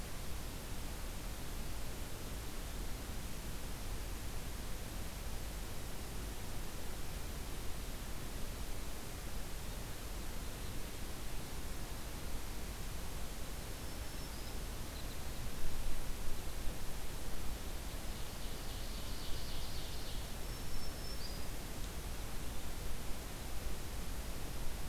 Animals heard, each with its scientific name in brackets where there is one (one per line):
Red Crossbill (Loxia curvirostra)
Black-throated Green Warbler (Setophaga virens)
Ovenbird (Seiurus aurocapilla)